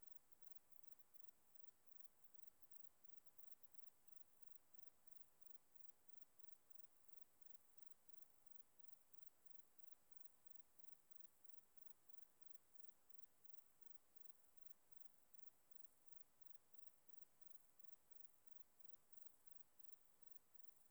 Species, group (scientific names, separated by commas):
Platycleis albopunctata, Orthoptera